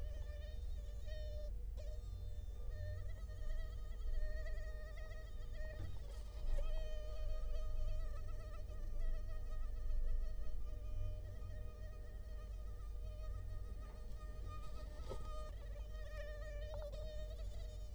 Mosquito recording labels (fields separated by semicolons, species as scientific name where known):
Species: Culex quinquefasciatus; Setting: cup